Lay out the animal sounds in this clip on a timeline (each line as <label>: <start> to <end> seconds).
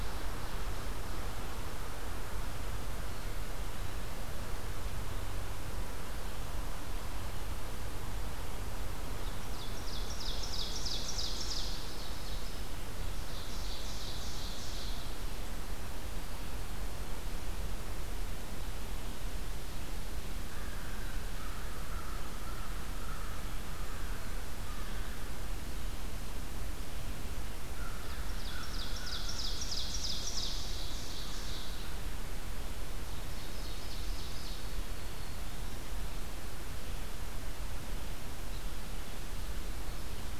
Ovenbird (Seiurus aurocapilla): 9.2 to 12.7 seconds
Ovenbird (Seiurus aurocapilla): 13.1 to 15.1 seconds
American Crow (Corvus brachyrhynchos): 20.2 to 25.5 seconds
American Crow (Corvus brachyrhynchos): 27.2 to 29.8 seconds
Ovenbird (Seiurus aurocapilla): 27.8 to 31.8 seconds
Ovenbird (Seiurus aurocapilla): 33.0 to 34.6 seconds
Black-throated Green Warbler (Setophaga virens): 34.3 to 35.9 seconds